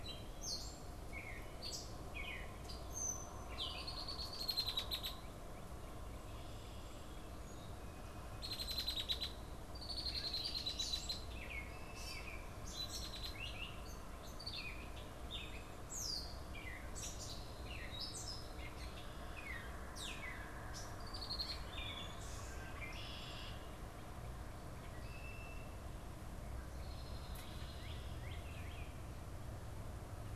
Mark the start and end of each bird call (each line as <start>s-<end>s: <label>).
0.0s-3.9s: Gray Catbird (Dumetella carolinensis)
3.3s-5.2s: Red-winged Blackbird (Agelaius phoeniceus)
8.3s-13.4s: Red-winged Blackbird (Agelaius phoeniceus)
10.6s-22.8s: Gray Catbird (Dumetella carolinensis)
14.1s-14.9s: Red-winged Blackbird (Agelaius phoeniceus)
20.8s-21.8s: Red-winged Blackbird (Agelaius phoeniceus)
22.5s-23.7s: Red-winged Blackbird (Agelaius phoeniceus)
24.5s-25.8s: Red-winged Blackbird (Agelaius phoeniceus)
26.6s-28.0s: Red-winged Blackbird (Agelaius phoeniceus)
27.4s-29.1s: Northern Cardinal (Cardinalis cardinalis)